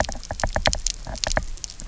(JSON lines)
{"label": "biophony, knock", "recorder": "SoundTrap 300"}